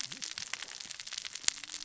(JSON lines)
{"label": "biophony, cascading saw", "recorder": "SoundTrap 600 or HydroMoth"}